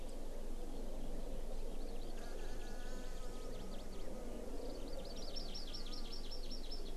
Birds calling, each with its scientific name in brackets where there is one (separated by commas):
Hawaii Amakihi (Chlorodrepanis virens)